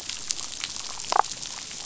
{"label": "biophony, damselfish", "recorder": "SoundTrap 500"}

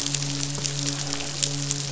{"label": "biophony, midshipman", "recorder": "SoundTrap 500"}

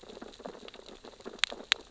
{"label": "biophony, sea urchins (Echinidae)", "recorder": "SoundTrap 600 or HydroMoth"}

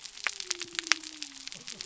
{"label": "biophony", "recorder": "SoundTrap 300"}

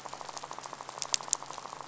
{"label": "biophony, rattle", "recorder": "SoundTrap 500"}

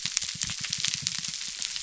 {"label": "biophony", "recorder": "SoundTrap 300"}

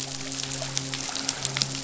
{"label": "biophony, midshipman", "recorder": "SoundTrap 500"}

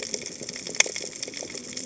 {"label": "biophony, cascading saw", "recorder": "HydroMoth"}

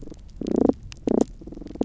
{"label": "biophony, damselfish", "recorder": "SoundTrap 300"}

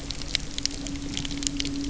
{"label": "anthrophony, boat engine", "recorder": "SoundTrap 300"}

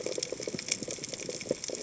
{"label": "biophony, chatter", "recorder": "HydroMoth"}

